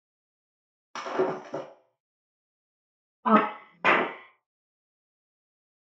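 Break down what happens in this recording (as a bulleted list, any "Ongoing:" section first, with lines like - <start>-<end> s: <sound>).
- 0.93-1.63 s: glass shatters
- 3.25-4.03 s: someone says "Up."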